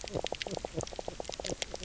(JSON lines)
{"label": "biophony, knock croak", "recorder": "SoundTrap 300"}